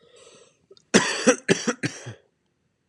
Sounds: Cough